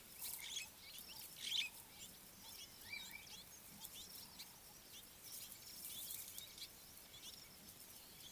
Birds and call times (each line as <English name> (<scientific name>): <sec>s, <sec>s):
Superb Starling (Lamprotornis superbus): 1.5s
Red-billed Firefinch (Lagonosticta senegala): 7.3s